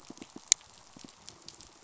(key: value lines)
label: biophony, pulse
recorder: SoundTrap 500